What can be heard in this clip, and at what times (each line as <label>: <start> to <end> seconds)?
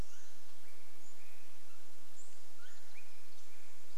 Swainson's Thrush call: 0 to 4 seconds
Pacific Wren song: 2 to 4 seconds
unidentified bird chip note: 2 to 4 seconds